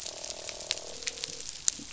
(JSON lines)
{"label": "biophony, croak", "recorder": "SoundTrap 500"}